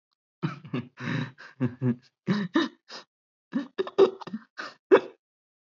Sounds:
Laughter